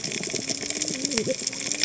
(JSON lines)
{"label": "biophony, cascading saw", "recorder": "HydroMoth"}